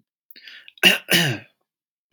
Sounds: Throat clearing